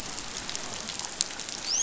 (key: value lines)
label: biophony, dolphin
recorder: SoundTrap 500